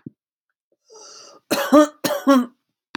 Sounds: Cough